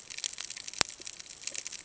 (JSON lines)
{"label": "ambient", "recorder": "HydroMoth"}